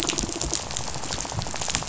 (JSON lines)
{"label": "biophony, rattle", "recorder": "SoundTrap 500"}